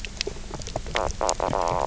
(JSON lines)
{"label": "biophony, knock croak", "recorder": "SoundTrap 300"}